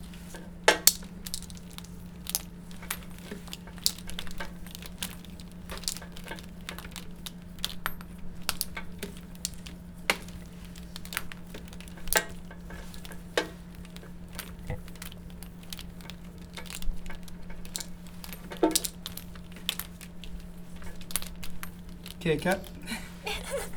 How many people are heard?
two